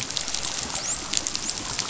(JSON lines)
{"label": "biophony, dolphin", "recorder": "SoundTrap 500"}